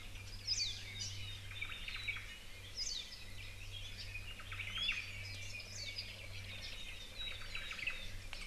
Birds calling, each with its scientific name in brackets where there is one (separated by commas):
Omao (Myadestes obscurus), Hawaii Creeper (Loxops mana), Warbling White-eye (Zosterops japonicus), Iiwi (Drepanis coccinea), Apapane (Himatione sanguinea)